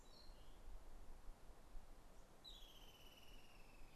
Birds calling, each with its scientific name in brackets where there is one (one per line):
Streak-headed Woodcreeper (Lepidocolaptes souleyetii)